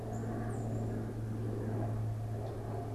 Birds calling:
Common Yellowthroat (Geothlypis trichas), Black-capped Chickadee (Poecile atricapillus)

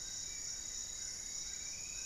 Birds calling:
Spot-winged Antshrike (Pygiptila stellaris), Striped Woodcreeper (Xiphorhynchus obsoletus), Amazonian Trogon (Trogon ramonianus), Goeldi's Antbird (Akletos goeldii)

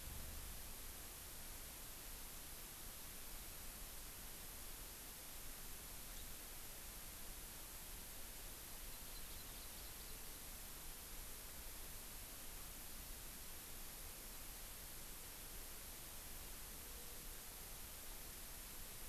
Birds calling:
Hawaii Amakihi (Chlorodrepanis virens)

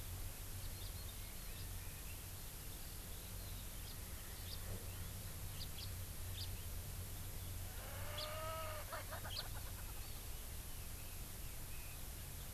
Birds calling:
House Finch (Haemorhous mexicanus), Red-billed Leiothrix (Leiothrix lutea), Erckel's Francolin (Pternistis erckelii)

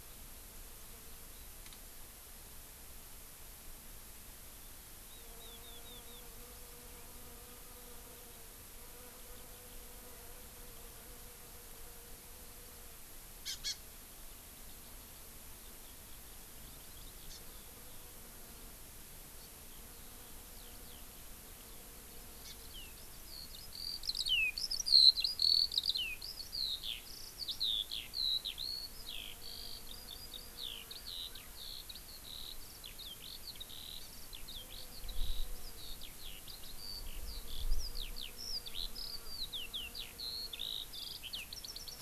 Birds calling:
Warbling White-eye (Zosterops japonicus), Hawaii Amakihi (Chlorodrepanis virens), Eurasian Skylark (Alauda arvensis)

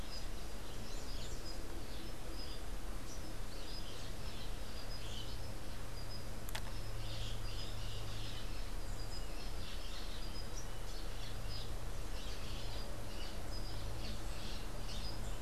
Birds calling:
Crimson-fronted Parakeet (Psittacara finschi)

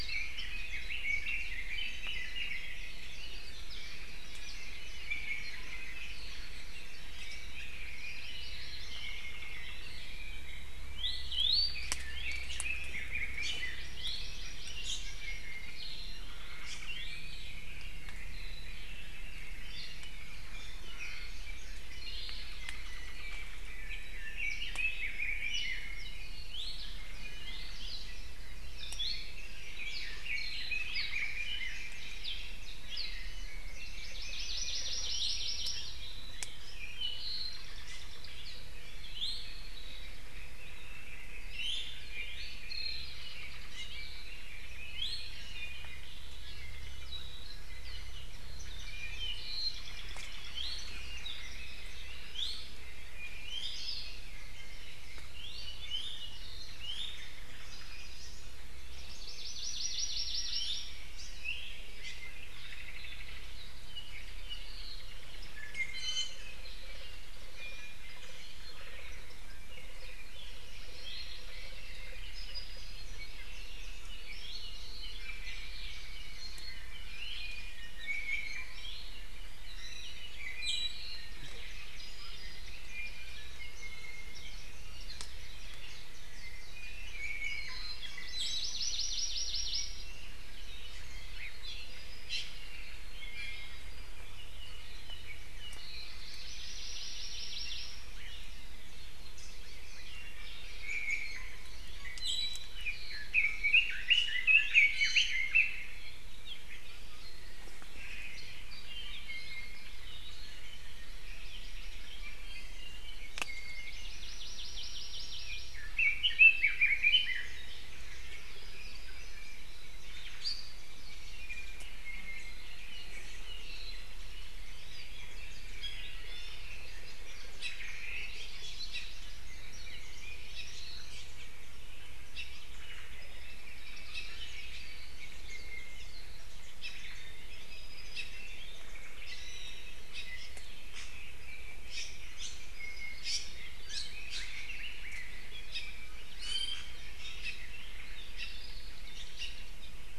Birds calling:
Omao (Myadestes obscurus), Iiwi (Drepanis coccinea), Hawaii Amakihi (Chlorodrepanis virens), Hawaii Akepa (Loxops coccineus), Warbling White-eye (Zosterops japonicus), Red-billed Leiothrix (Leiothrix lutea), Apapane (Himatione sanguinea)

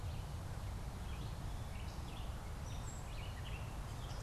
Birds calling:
Gray Catbird (Dumetella carolinensis), Red-eyed Vireo (Vireo olivaceus)

